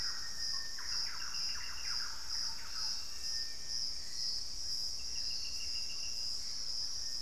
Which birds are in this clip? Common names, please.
Black-faced Antthrush, Hauxwell's Thrush, Little Tinamou, Thrush-like Wren, Gray Antbird